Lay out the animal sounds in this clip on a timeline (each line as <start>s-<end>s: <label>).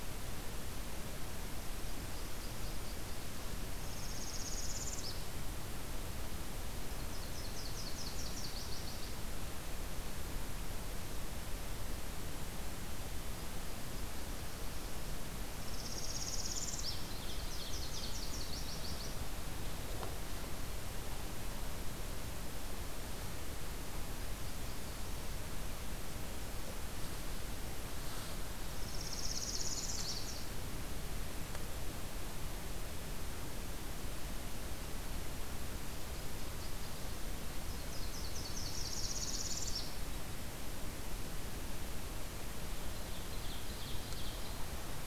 1.7s-3.7s: Nashville Warbler (Leiothlypis ruficapilla)
3.8s-5.4s: Northern Parula (Setophaga americana)
6.8s-9.3s: Nashville Warbler (Leiothlypis ruficapilla)
15.5s-17.2s: Northern Parula (Setophaga americana)
16.9s-19.5s: Nashville Warbler (Leiothlypis ruficapilla)
28.6s-30.4s: Northern Parula (Setophaga americana)
35.7s-40.0s: Nashville Warbler (Leiothlypis ruficapilla)
38.2s-40.0s: Northern Parula (Setophaga americana)
42.7s-44.7s: Ovenbird (Seiurus aurocapilla)